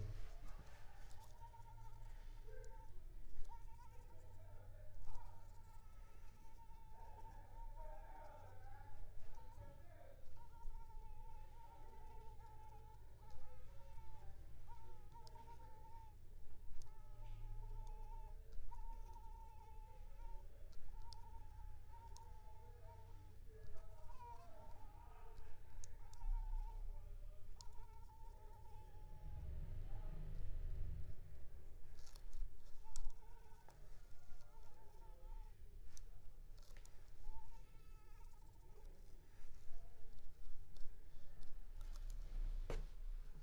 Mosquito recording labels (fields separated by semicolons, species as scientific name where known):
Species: Anopheles squamosus; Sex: female; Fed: unfed; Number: one; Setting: cup